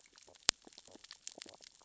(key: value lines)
label: biophony, stridulation
recorder: SoundTrap 600 or HydroMoth